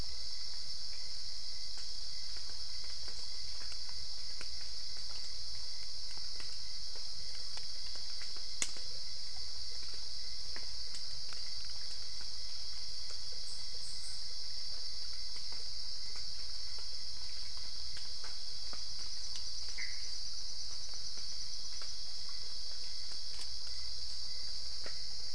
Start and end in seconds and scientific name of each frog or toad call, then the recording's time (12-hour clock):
19.7	20.1	Pithecopus azureus
2:00am